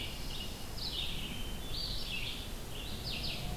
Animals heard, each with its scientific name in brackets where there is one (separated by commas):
Hermit Thrush (Catharus guttatus), Red-eyed Vireo (Vireo olivaceus), Pine Warbler (Setophaga pinus)